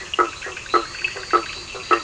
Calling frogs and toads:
Boana bischoffi (Hylidae), Boana faber (Hylidae), Boana leptolineata (Hylidae), Sphaenorhynchus surdus (Hylidae), Elachistocleis bicolor (Microhylidae)
~10pm

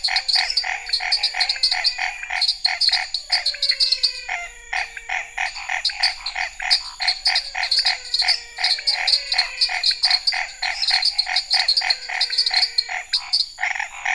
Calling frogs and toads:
Boana raniceps (Hylidae), Dendropsophus nanus (Hylidae), Physalaemus albonotatus (Leptodactylidae), Scinax fuscovarius (Hylidae), Leptodactylus podicipinus (Leptodactylidae), Pithecopus azureus (Hylidae)
~9pm

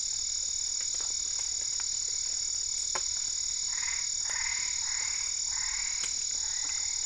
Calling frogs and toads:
Boana albopunctata (Hylidae)
9:30pm

